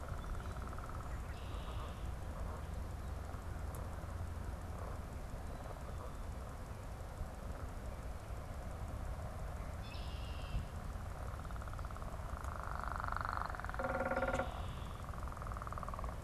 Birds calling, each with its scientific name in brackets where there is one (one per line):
unidentified bird
Red-winged Blackbird (Agelaius phoeniceus)